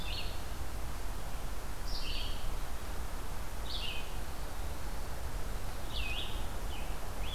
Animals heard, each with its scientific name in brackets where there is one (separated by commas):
Eastern Wood-Pewee (Contopus virens), Red-eyed Vireo (Vireo olivaceus), Scarlet Tanager (Piranga olivacea)